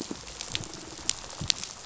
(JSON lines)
{"label": "biophony, rattle response", "recorder": "SoundTrap 500"}